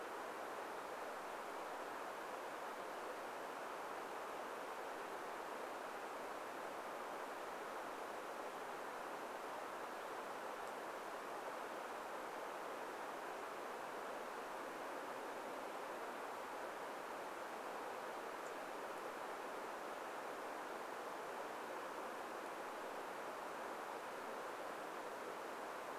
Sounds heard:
forest ambience